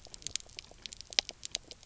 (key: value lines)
label: biophony, knock croak
recorder: SoundTrap 300